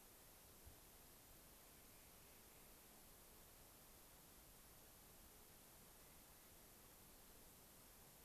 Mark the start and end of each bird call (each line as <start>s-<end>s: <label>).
1.5s-2.9s: Clark's Nutcracker (Nucifraga columbiana)
5.9s-6.6s: Clark's Nutcracker (Nucifraga columbiana)